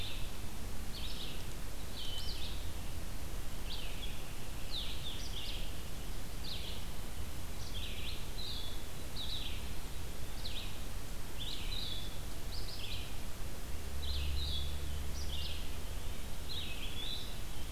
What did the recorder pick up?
Blue-headed Vireo, Red-eyed Vireo